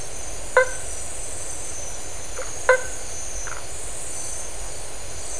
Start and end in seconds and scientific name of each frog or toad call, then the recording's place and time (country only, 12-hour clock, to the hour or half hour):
0.3	0.9	Boana faber
2.1	3.3	Boana faber
Brazil, 1:30am